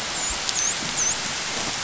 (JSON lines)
{"label": "biophony, dolphin", "recorder": "SoundTrap 500"}